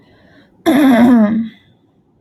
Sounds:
Throat clearing